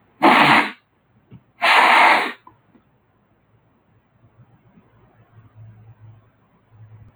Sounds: Sniff